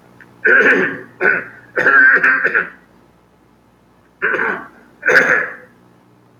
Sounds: Throat clearing